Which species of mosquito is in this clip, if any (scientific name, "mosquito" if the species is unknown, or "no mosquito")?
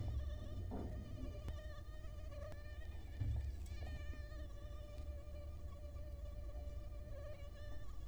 Culex quinquefasciatus